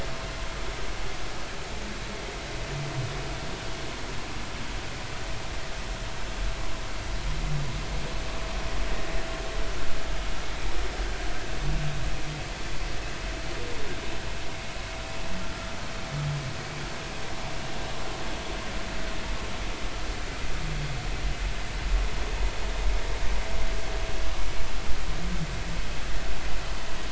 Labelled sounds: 22.7	23.0	vessel noise, 3.5 to 3.8 kHz

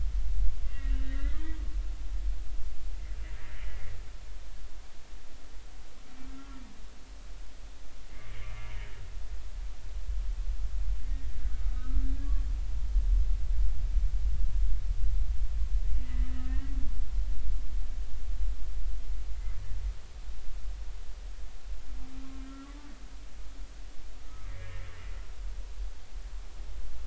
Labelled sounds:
0.6	1.6	humpback whale, 1.6 to 3.0 kHz
6.2	6.5	humpback whale, 1.3 to 1.4 kHz
8.3	8.6	humpback whale, 2.1 to 2.5 kHz
11.1	12.0	humpback whale, 1.2 to 1.9 kHz
16.0	16.8	humpback whale, 1.8 to 2.1 kHz
24.2	24.8	humpback whale, 1.2 to 2.4 kHz

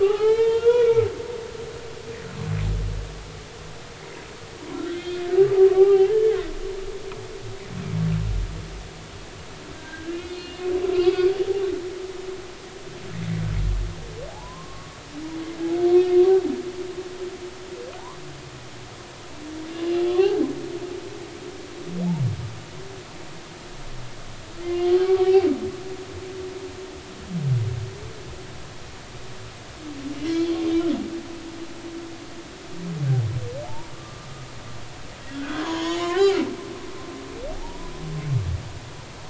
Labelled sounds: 0.0	1.1	humpback whale, 0.80 to 3.8 kHz
1.5	1.9	humpback whale, 3.1 to 3.5 kHz
4.9	6.3	humpback whale, 0.80 to 3.6 kHz
9.7	10.6	humpback whale, 1.5 to 3.6 kHz
10.9	11.3	humpback whale, 1.1 to 2.7 kHz
14.3	14.9	humpback whale, 0.80 to 1.2 kHz
20.2	20.4	humpback whale, 0.80 to 0.86 kHz
24.6	25.5	humpback whale, 0.80 to 1.2 kHz
30.3	30.6	humpback whale, 3.0 to 3.4 kHz
33.7	34.3	humpback whale, 0.83 to 1.2 kHz
35.3	36.3	humpback whale, 0.93 to 7.0 kHz
37.5	37.9	humpback whale, 0.80 to 1.0 kHz

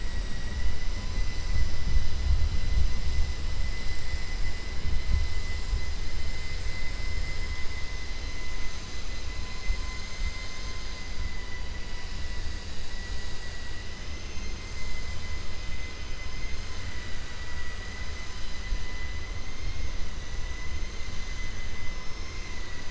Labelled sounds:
10.0	10.9	vessel noise, 1.3 to 5.0 kHz
14.2	14.9	vessel noise, 2.1 to 7.0 kHz
16.2	18.0	vessel noise, 0.98 to 4.0 kHz
22.2	22.8	vessel noise, 0.98 to 2.8 kHz

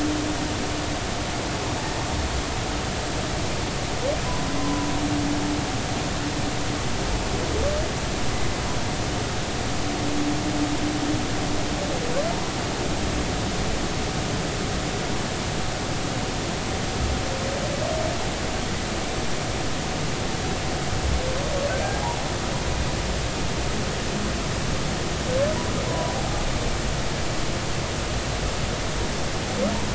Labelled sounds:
4.6	4.8	humpback whale, 0.96 to 1.1 kHz
25.9	26.2	humpback whale, 0.93 to 1.1 kHz

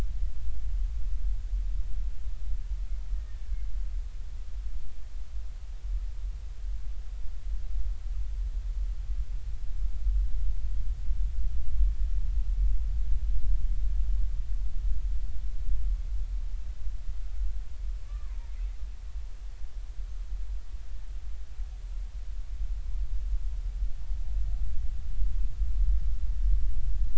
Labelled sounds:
3.1	3.4	killer whale, Bigg's (transient), 1.8 to 1.9 kHz
18.1	18.5	killer whale, Bigg's (transient), 0.86 to 1.3 kHz

